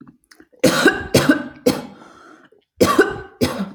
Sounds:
Cough